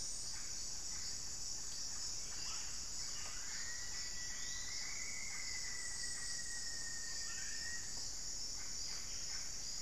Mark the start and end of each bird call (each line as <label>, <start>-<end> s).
Yellow-rumped Cacique (Cacicus cela), 0.0-9.8 s
Black-faced Cotinga (Conioptilon mcilhennyi), 3.0-8.0 s
Rufous-fronted Antthrush (Formicarius rufifrons), 3.1-7.9 s
unidentified bird, 4.1-5.0 s